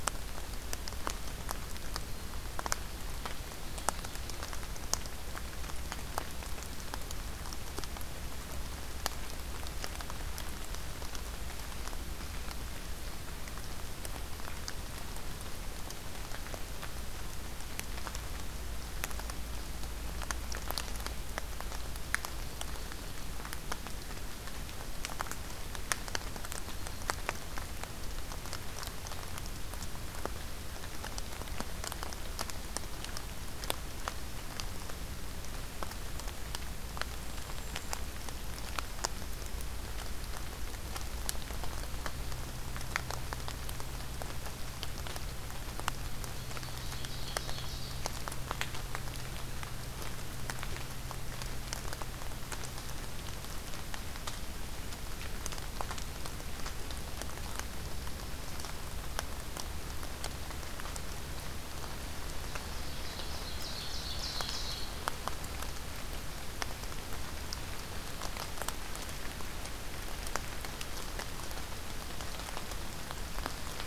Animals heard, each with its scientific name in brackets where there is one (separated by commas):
Golden-crowned Kinglet (Regulus satrapa), Ovenbird (Seiurus aurocapilla)